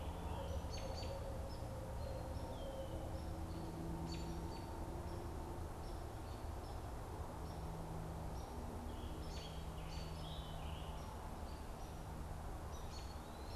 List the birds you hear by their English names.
Scarlet Tanager, Barred Owl, Red-eyed Vireo, American Robin, Hairy Woodpecker